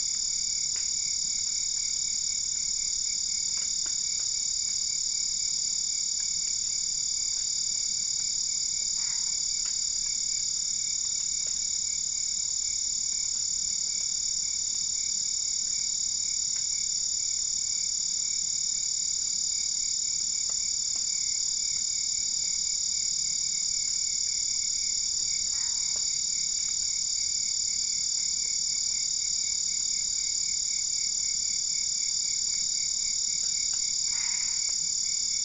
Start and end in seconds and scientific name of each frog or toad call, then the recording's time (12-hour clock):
8.9	9.3	Boana albopunctata
25.4	26.1	Boana albopunctata
34.1	34.8	Boana albopunctata
3:00am